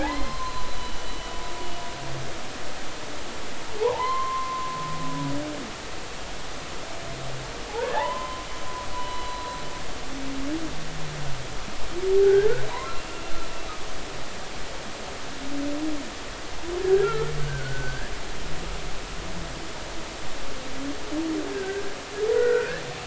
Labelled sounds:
0.0	1.1	humpback whale, 0.80 to 4.3 kHz
3.8	4.8	humpback whale, 0.80 to 2.1 kHz
7.8	8.5	humpback whale, 0.80 to 3.1 kHz
8.9	9.3	humpback whale, 0.93 to 3.0 kHz
12.2	13.2	humpback whale, 0.86 to 2.8 kHz
17.0	18.1	humpback whale, 1.2 to 1.8 kHz
21.5	21.9	humpback whale, 1.5 to 1.7 kHz
22.3	22.8	humpback whale, 1.3 to 2.0 kHz

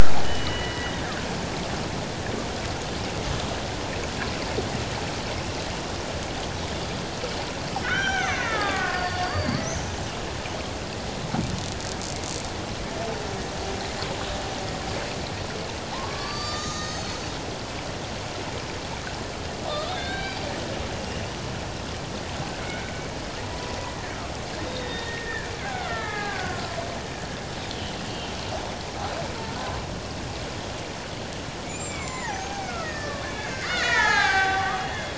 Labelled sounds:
7.8	9.6	killer whale, Bigg's (transient), 1.0 to 6.3 kHz
15.9	17.2	killer whale, Bigg's (transient), 0.78 to 8.0 kHz
19.9	21.4	killer whale, Bigg's (transient), 1.5 to 6.0 kHz
22.6	22.9	killer whale, Bigg's (transient), 1.4 to 2.3 kHz
23.5	23.8	killer whale, Bigg's (transient), 0.91 to 1.0 kHz
24.7	26.7	killer whale, Bigg's (transient), 0.78 to 3.8 kHz
28.1	28.3	killer whale, Bigg's (transient), 2.7 to 2.9 kHz
31.6	35.1	killer whale, Bigg's (transient), 0.78 to 7.5 kHz

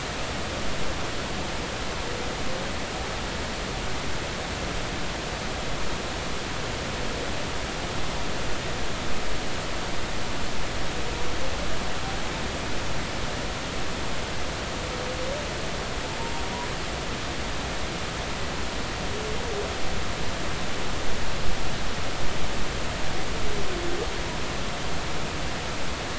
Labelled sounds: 16.2	16.4	humpback whale, 0.86 to 1.0 kHz

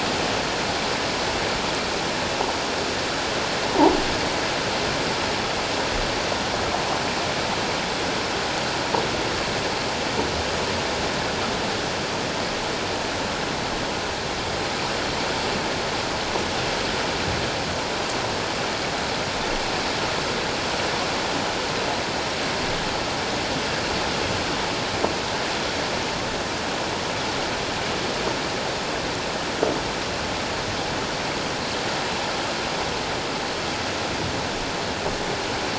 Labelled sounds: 3.7	3.9	croaking sound likely from a nearby submerged object, 0.78 to 1.0 kHz

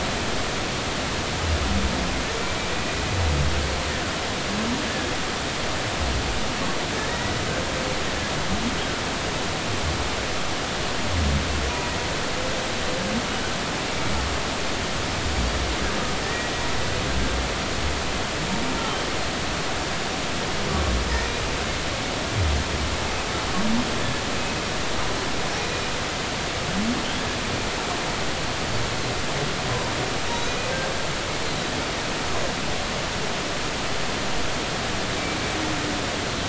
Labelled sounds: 7.1	7.4	humpback whale, 1.8 to 2.0 kHz
16.2	16.5	humpback whale, 1.7 to 2.0 kHz
30.3	30.5	humpback whale, 3.7 to 3.9 kHz

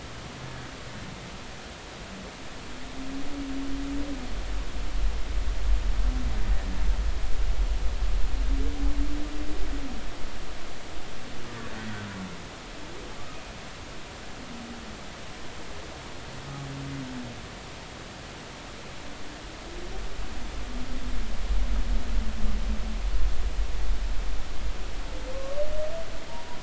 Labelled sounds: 25.3	25.6	humpback whale, 1.0 to 1.2 kHz
26.3	26.6	humpback whale, 0.90 to 1.0 kHz

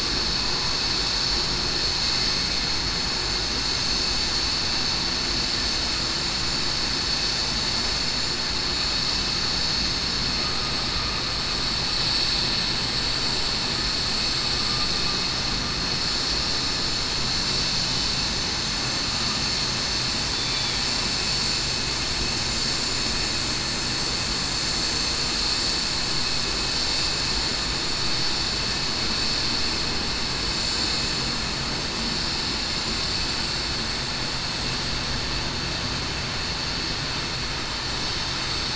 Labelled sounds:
20.3	20.7	killer whale, southern resident, 3.4 to 3.5 kHz
23.4	23.8	vessel noise, 6.16 to 6.21 kHz

